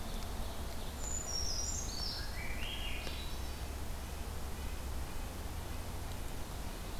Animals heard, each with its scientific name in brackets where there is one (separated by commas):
Swainson's Thrush (Catharus ustulatus), Brown Creeper (Certhia americana), Ovenbird (Seiurus aurocapilla), Red-breasted Nuthatch (Sitta canadensis), Winter Wren (Troglodytes hiemalis)